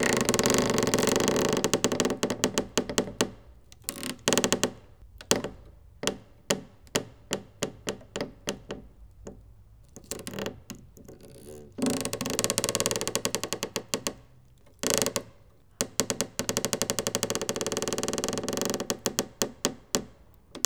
What is creaking?
door